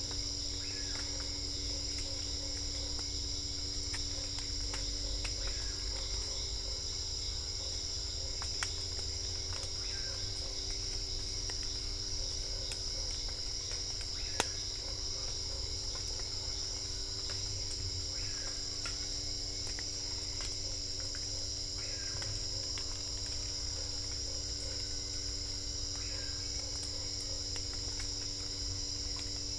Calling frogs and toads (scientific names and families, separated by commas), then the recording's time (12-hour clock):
Boana lundii (Hylidae), Dendropsophus cruzi (Hylidae)
7:00pm